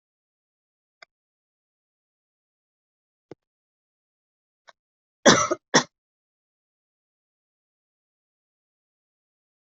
{"expert_labels": [{"quality": "good", "cough_type": "dry", "dyspnea": false, "wheezing": false, "stridor": false, "choking": false, "congestion": false, "nothing": true, "diagnosis": "healthy cough", "severity": "pseudocough/healthy cough"}], "age": 28, "gender": "female", "respiratory_condition": true, "fever_muscle_pain": true, "status": "COVID-19"}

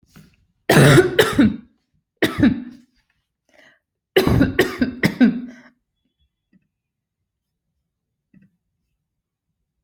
{"expert_labels": [{"quality": "good", "cough_type": "dry", "dyspnea": false, "wheezing": false, "stridor": false, "choking": false, "congestion": false, "nothing": true, "diagnosis": "upper respiratory tract infection", "severity": "mild"}], "age": 24, "gender": "female", "respiratory_condition": false, "fever_muscle_pain": false, "status": "healthy"}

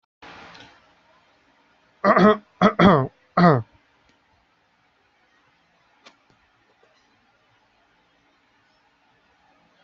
{"expert_labels": [{"quality": "no cough present", "dyspnea": false, "wheezing": false, "stridor": false, "choking": false, "congestion": false, "nothing": false}], "gender": "female", "respiratory_condition": false, "fever_muscle_pain": false, "status": "COVID-19"}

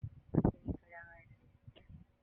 {"expert_labels": [{"quality": "no cough present", "dyspnea": false, "wheezing": false, "stridor": false, "choking": false, "congestion": false, "nothing": false}]}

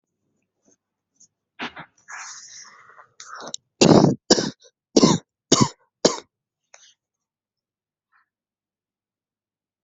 {"expert_labels": [{"quality": "ok", "cough_type": "dry", "dyspnea": false, "wheezing": false, "stridor": false, "choking": false, "congestion": false, "nothing": true, "diagnosis": "lower respiratory tract infection", "severity": "mild"}], "age": 25, "gender": "male", "respiratory_condition": false, "fever_muscle_pain": false, "status": "symptomatic"}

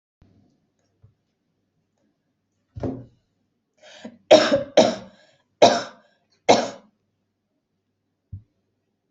{"expert_labels": [{"quality": "good", "cough_type": "dry", "dyspnea": false, "wheezing": false, "stridor": false, "choking": false, "congestion": false, "nothing": true, "diagnosis": "upper respiratory tract infection", "severity": "mild"}], "age": 22, "gender": "female", "respiratory_condition": false, "fever_muscle_pain": false, "status": "healthy"}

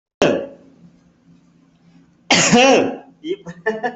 {"expert_labels": [{"quality": "poor", "cough_type": "unknown", "dyspnea": false, "wheezing": false, "stridor": false, "choking": false, "congestion": false, "nothing": true, "diagnosis": "healthy cough", "severity": "pseudocough/healthy cough"}], "age": 29, "gender": "female", "respiratory_condition": true, "fever_muscle_pain": true, "status": "COVID-19"}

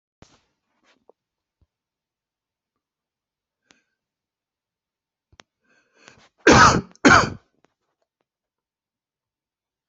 {"expert_labels": [{"quality": "good", "cough_type": "dry", "dyspnea": true, "wheezing": false, "stridor": true, "choking": false, "congestion": false, "nothing": false, "diagnosis": "obstructive lung disease", "severity": "mild"}], "age": 47, "gender": "male", "respiratory_condition": false, "fever_muscle_pain": true, "status": "symptomatic"}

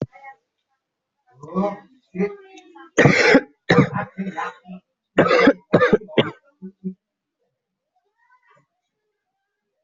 {"expert_labels": [{"quality": "poor", "cough_type": "unknown", "dyspnea": false, "wheezing": false, "stridor": false, "choking": false, "congestion": false, "nothing": true, "diagnosis": "upper respiratory tract infection", "severity": "mild"}], "gender": "male", "respiratory_condition": true, "fever_muscle_pain": false, "status": "COVID-19"}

